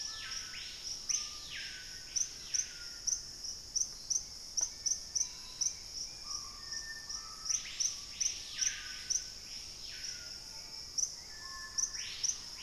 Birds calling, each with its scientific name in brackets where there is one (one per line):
Black-faced Antthrush (Formicarius analis)
Hauxwell's Thrush (Turdus hauxwelli)
Thrush-like Wren (Campylorhynchus turdinus)
Screaming Piha (Lipaugus vociferans)
Bright-rumped Attila (Attila spadiceus)